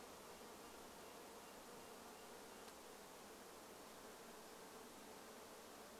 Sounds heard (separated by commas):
insect buzz, Red-breasted Nuthatch song